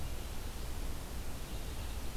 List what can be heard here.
Red-eyed Vireo, Ovenbird